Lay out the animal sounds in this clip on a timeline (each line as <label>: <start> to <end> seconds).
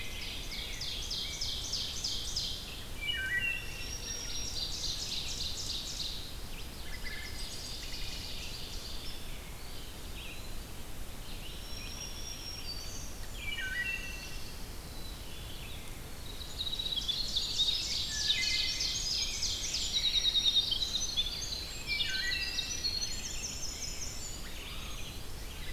Rose-breasted Grosbeak (Pheucticus ludovicianus): 0.0 to 1.6 seconds
Ovenbird (Seiurus aurocapilla): 0.0 to 3.0 seconds
Red-eyed Vireo (Vireo olivaceus): 0.0 to 15.8 seconds
Wood Thrush (Hylocichla mustelina): 2.8 to 4.0 seconds
Black-throated Green Warbler (Setophaga virens): 3.5 to 5.2 seconds
Ovenbird (Seiurus aurocapilla): 3.9 to 9.1 seconds
Wood Thrush (Hylocichla mustelina): 6.9 to 8.3 seconds
Eastern Wood-Pewee (Contopus virens): 9.5 to 10.8 seconds
Black-throated Green Warbler (Setophaga virens): 11.3 to 13.1 seconds
Wood Thrush (Hylocichla mustelina): 13.1 to 14.5 seconds
Black-capped Chickadee (Poecile atricapillus): 14.7 to 15.8 seconds
Ovenbird (Seiurus aurocapilla): 16.3 to 21.4 seconds
Winter Wren (Troglodytes hiemalis): 16.5 to 25.0 seconds
Wood Thrush (Hylocichla mustelina): 17.8 to 19.4 seconds
Rose-breasted Grosbeak (Pheucticus ludovicianus): 19.0 to 20.7 seconds
Wood Thrush (Hylocichla mustelina): 21.8 to 23.0 seconds
Red-eyed Vireo (Vireo olivaceus): 23.0 to 25.7 seconds